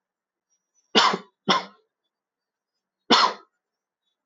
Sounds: Cough